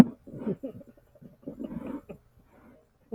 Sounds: Laughter